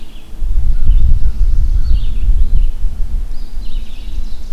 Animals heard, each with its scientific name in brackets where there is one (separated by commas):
Ovenbird (Seiurus aurocapilla), Red-eyed Vireo (Vireo olivaceus), American Crow (Corvus brachyrhynchos), Eastern Wood-Pewee (Contopus virens)